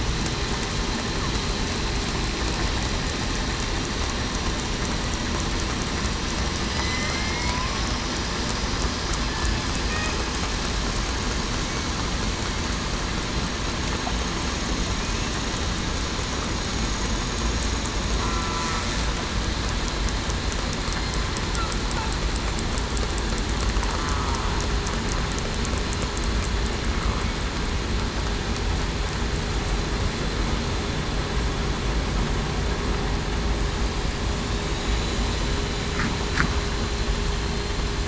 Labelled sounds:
6.7	7.5	killer whale, southern resident, 2.0 to 2.3 kHz
18.2	18.6	killer whale, southern resident, 1.3 to 1.4 kHz

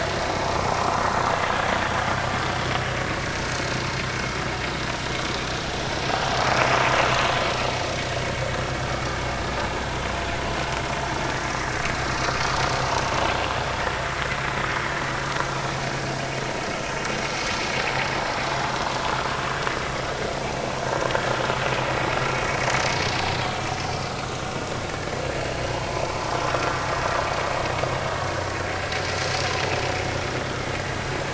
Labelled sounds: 0.8	1.0	vessel noise, 0.93 to 1.4 kHz
23.6	23.8	vessel noise, 5.5 to 5.6 kHz
24.9	25.2	vessel noise, 1.6 to 1.8 kHz

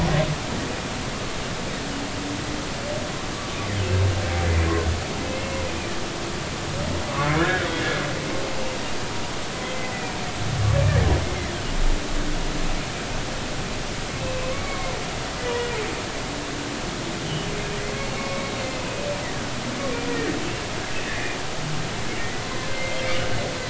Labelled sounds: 5.3	5.7	humpback whale, 2.1 to 2.8 kHz
7.2	7.7	humpback whale, 1.3 to 2.3 kHz
14.2	14.9	humpback whale, 0.99 to 2.7 kHz
18.2	18.4	humpback whale, 1.1 to 2.3 kHz
21.0	21.4	humpback whale, 1.7 to 2.0 kHz
22.7	23.0	humpback whale, 2.0 to 2.1 kHz

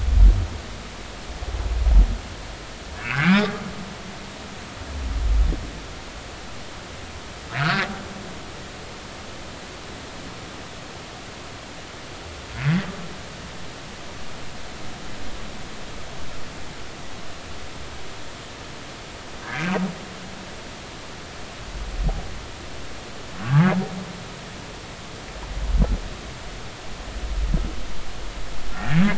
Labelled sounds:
3.0	3.5	humpback whale, 1.3 to 2.5 kHz
7.6	7.9	humpback whale, 1.2 to 1.8 kHz
19.4	19.7	humpback whale, 1.5 to 1.8 kHz
23.4	23.8	humpback whale, 1.3 to 1.7 kHz
28.8	29.0	humpback whale, 1.7 to 1.9 kHz

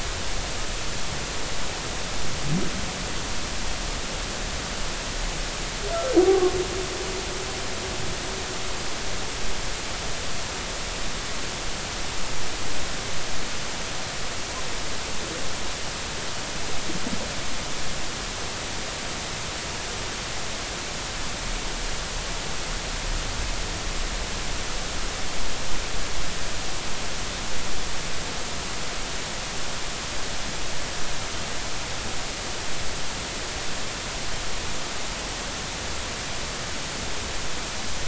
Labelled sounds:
6.2	6.5	humpback whale, 1.0 to 1.2 kHz

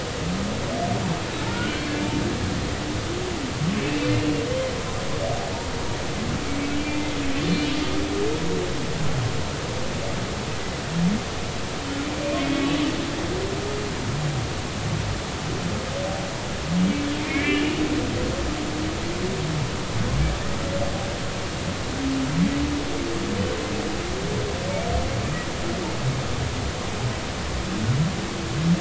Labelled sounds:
1.5	1.8	humpback whale, 1.3 to 1.6 kHz
3.8	4.1	humpback whale, 2.6 to 2.7 kHz
6.9	7.7	humpback whale, 2.0 to 3.6 kHz
12.4	12.7	humpback whale, 2.1 to 2.3 kHz
17.3	17.7	humpback whale, 1.6 to 3.0 kHz

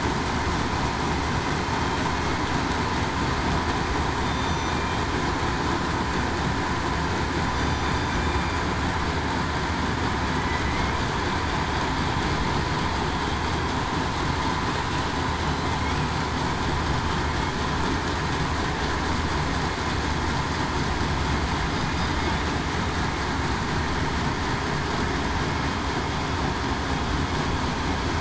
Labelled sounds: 4.2	4.7	killer whale, southern resident, 3.5 to 6.0 kHz

